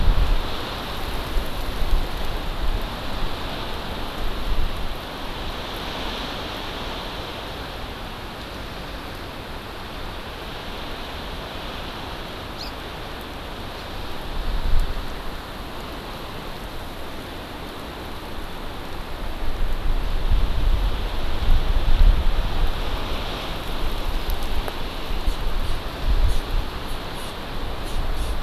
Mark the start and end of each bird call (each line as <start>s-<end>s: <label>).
12.5s-12.7s: Hawaii Amakihi (Chlorodrepanis virens)